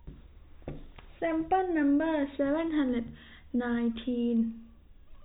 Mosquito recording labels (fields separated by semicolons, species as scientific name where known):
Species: no mosquito; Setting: cup